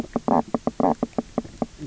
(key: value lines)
label: biophony, knock croak
recorder: SoundTrap 300